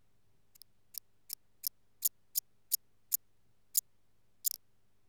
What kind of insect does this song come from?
orthopteran